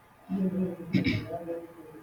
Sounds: Throat clearing